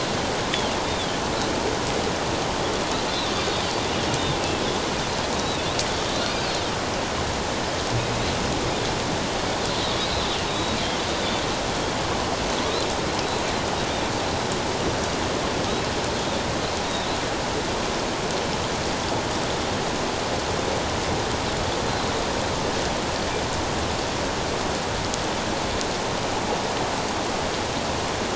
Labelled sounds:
0.8	1.1	Pacific white-sided dolphin, 3.2 to 3.7 kHz
3.1	3.3	Pacific white-sided dolphin, 3.5 to 4.2 kHz
5.3	5.6	Pacific white-sided dolphin, 3.7 to 4.0 kHz
10.5	10.8	Pacific white-sided dolphin, 3.7 to 3.9 kHz
16.8	17.1	Pacific white-sided dolphin, 3.5 to 3.9 kHz

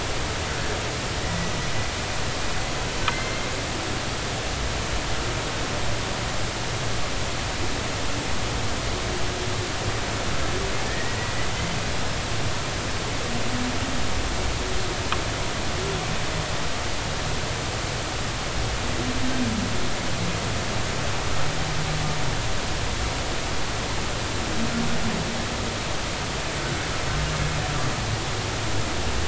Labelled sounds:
1.2	1.5	humpback whale, 1.9 to 2.0 kHz
3.1	3.5	humpback whale, 2.0 to 2.2 kHz
10.9	11.2	humpback whale, 1.7 to 2.0 kHz

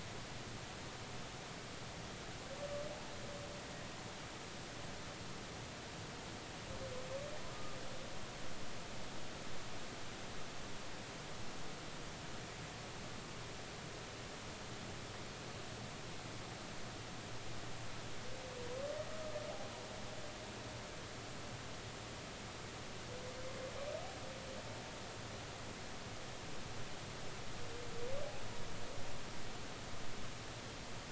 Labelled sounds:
7.5	7.8	humpback whale, 1.2 to 1.3 kHz

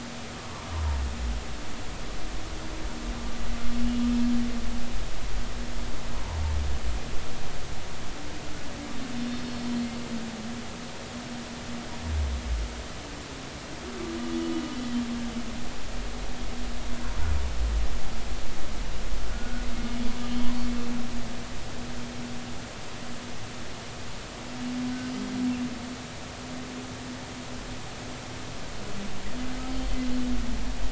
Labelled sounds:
0.4	0.7	humpback whale, 0.90 to 1.2 kHz
9.2	9.7	humpback whale, 4.3 to 4.4 kHz
19.3	20.5	humpback whale, 1.4 to 3.2 kHz

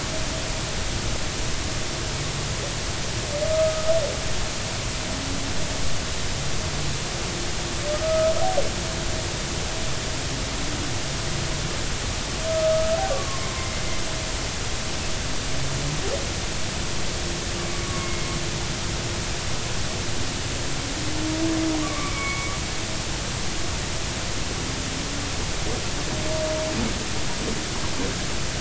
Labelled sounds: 3.5	3.9	humpback whale, 1.2 to 1.3 kHz
7.9	8.3	humpback whale, 1.2 to 1.3 kHz
12.5	13.8	humpback whale, 1.0 to 2.2 kHz
18.0	18.3	humpback whale, 2.0 to 2.2 kHz
21.8	22.5	humpback whale, 1.0 to 2.4 kHz

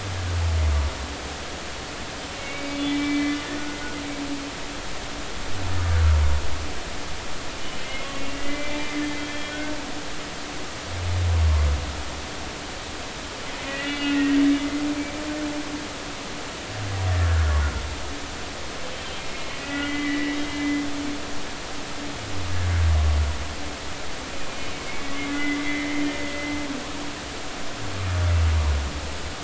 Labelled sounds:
2.3	3.4	humpback whale, 2.0 to 4.4 kHz
8.1	8.8	humpback whale, 1.9 to 2.9 kHz
9.2	9.9	humpback whale, 2.3 to 3.4 kHz
13.6	14.4	humpback whale, 1.8 to 3.5 kHz
14.8	15.1	humpback whale, 2.2 to 2.4 kHz
18.9	20.8	humpback whale, 1.3 to 3.2 kHz
25.3	26.0	humpback whale, 1.8 to 2.2 kHz

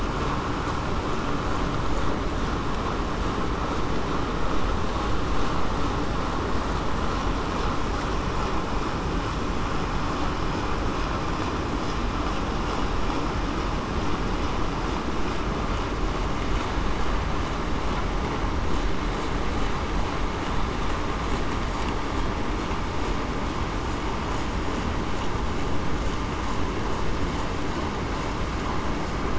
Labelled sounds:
21.7	22.1	killer whale, southern resident, 4.5 to 4.7 kHz

